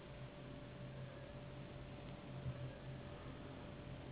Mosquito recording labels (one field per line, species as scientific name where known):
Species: Anopheles gambiae s.s.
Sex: female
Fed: unfed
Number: one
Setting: insect culture